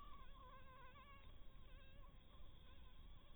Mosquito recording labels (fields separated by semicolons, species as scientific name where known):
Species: Anopheles harrisoni; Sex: female; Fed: blood-fed; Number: one; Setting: cup